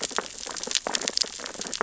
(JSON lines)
{"label": "biophony, sea urchins (Echinidae)", "recorder": "SoundTrap 600 or HydroMoth"}